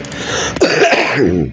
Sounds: Cough